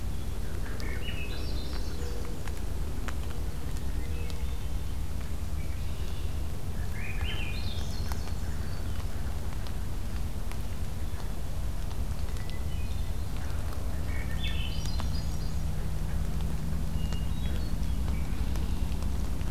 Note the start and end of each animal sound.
0.3s-2.4s: Swainson's Thrush (Catharus ustulatus)
3.6s-4.7s: Hermit Thrush (Catharus guttatus)
5.5s-6.3s: Red-winged Blackbird (Agelaius phoeniceus)
6.6s-8.6s: Swainson's Thrush (Catharus ustulatus)
12.2s-13.5s: Hermit Thrush (Catharus guttatus)
13.9s-15.8s: Swainson's Thrush (Catharus ustulatus)
16.8s-17.9s: Hermit Thrush (Catharus guttatus)
18.1s-18.9s: Red-winged Blackbird (Agelaius phoeniceus)

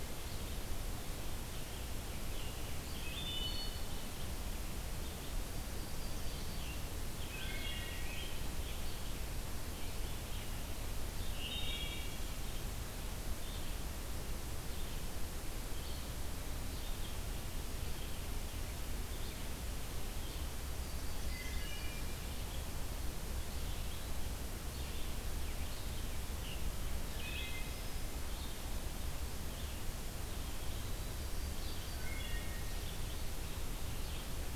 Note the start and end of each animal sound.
0.0s-34.3s: Red-eyed Vireo (Vireo olivaceus)
1.9s-3.4s: Scarlet Tanager (Piranga olivacea)
2.8s-3.9s: Wood Thrush (Hylocichla mustelina)
5.4s-6.8s: Yellow-rumped Warbler (Setophaga coronata)
6.4s-8.4s: Scarlet Tanager (Piranga olivacea)
7.2s-8.0s: Wood Thrush (Hylocichla mustelina)
11.2s-12.1s: Wood Thrush (Hylocichla mustelina)
20.4s-22.0s: Yellow-rumped Warbler (Setophaga coronata)
21.2s-22.1s: Wood Thrush (Hylocichla mustelina)
26.3s-27.6s: Scarlet Tanager (Piranga olivacea)
27.1s-27.9s: Wood Thrush (Hylocichla mustelina)
30.7s-31.8s: Yellow-rumped Warbler (Setophaga coronata)
31.9s-32.8s: Wood Thrush (Hylocichla mustelina)

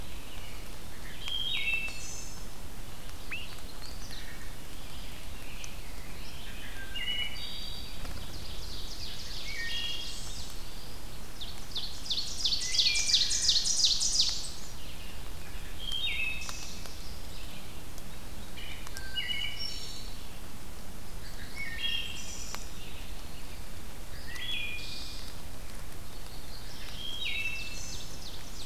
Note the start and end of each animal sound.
0.8s-2.4s: Wood Thrush (Hylocichla mustelina)
3.2s-3.5s: unidentified call
3.4s-4.3s: Magnolia Warbler (Setophaga magnolia)
6.5s-8.1s: Wood Thrush (Hylocichla mustelina)
8.0s-10.3s: Ovenbird (Seiurus aurocapilla)
9.0s-10.6s: Wood Thrush (Hylocichla mustelina)
11.2s-14.5s: Ovenbird (Seiurus aurocapilla)
12.5s-13.5s: Wood Thrush (Hylocichla mustelina)
15.7s-17.0s: Wood Thrush (Hylocichla mustelina)
18.5s-20.2s: Wood Thrush (Hylocichla mustelina)
21.1s-22.7s: Wood Thrush (Hylocichla mustelina)
21.1s-22.1s: Magnolia Warbler (Setophaga magnolia)
24.1s-25.5s: Wood Thrush (Hylocichla mustelina)
26.1s-27.2s: Black-throated Blue Warbler (Setophaga caerulescens)
26.9s-28.1s: Wood Thrush (Hylocichla mustelina)
27.3s-28.7s: Ovenbird (Seiurus aurocapilla)

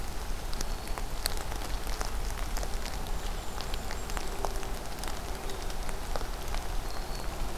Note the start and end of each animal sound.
0.1s-1.1s: Black-throated Green Warbler (Setophaga virens)
3.0s-4.5s: Golden-crowned Kinglet (Regulus satrapa)
6.5s-7.6s: Black-throated Green Warbler (Setophaga virens)

